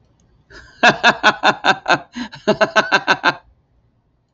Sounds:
Laughter